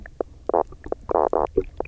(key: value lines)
label: biophony, knock croak
recorder: SoundTrap 300